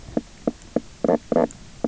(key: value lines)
label: biophony, knock croak
recorder: SoundTrap 300